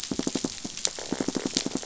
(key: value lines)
label: biophony, knock
recorder: SoundTrap 500